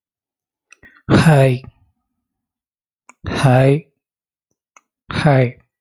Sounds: Cough